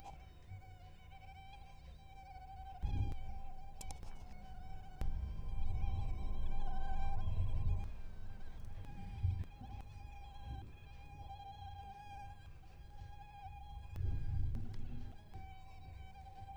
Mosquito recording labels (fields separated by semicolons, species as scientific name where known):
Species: Anopheles gambiae; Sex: male; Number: one; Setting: cup